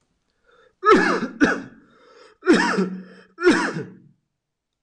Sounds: Cough